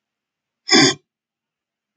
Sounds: Sniff